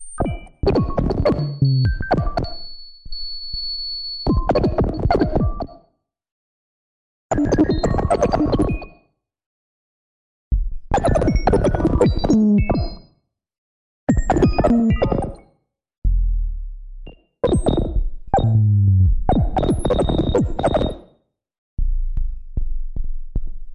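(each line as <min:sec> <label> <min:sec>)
0:00.0 Alien-like beeping and bleeping sounds. 0:02.9
0:03.1 A high-pitched sinusoidal tone. 0:04.3
0:04.3 Alien-like beeping and bleeping sounds. 0:05.7
0:07.3 Alien-like beeping and bleeping sounds. 0:08.9
0:10.5 A short, low-pitched thumping sound. 0:10.9
0:10.9 Alien-like beeping and bleeping sounds. 0:13.0
0:14.1 Alien-like beeping and bleeping sounds. 0:15.4
0:16.0 A low-pitched thumping sound gradually decreases in volume. 0:17.0
0:17.1 Short beeping sounds. 0:17.1
0:17.4 Alien-like beeping and bleeping sounds. 0:18.2
0:18.3 A low-pitched shutdown sound. 0:19.2
0:18.3 A short bleeping sound. 0:18.4
0:19.2 Alien-like beeping and bleeping sounds. 0:21.0
0:21.8 A low-pitched rhythmic pulse. 0:23.7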